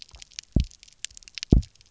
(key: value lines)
label: biophony, double pulse
recorder: SoundTrap 300